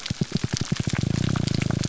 {"label": "biophony, pulse", "recorder": "SoundTrap 300"}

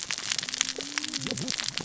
{"label": "biophony, cascading saw", "recorder": "SoundTrap 600 or HydroMoth"}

